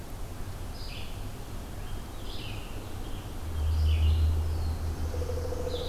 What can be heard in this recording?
Red-eyed Vireo, American Robin, Black-throated Blue Warbler